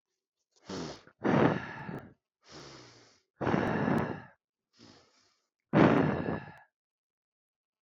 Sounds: Sigh